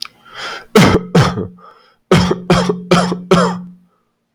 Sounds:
Cough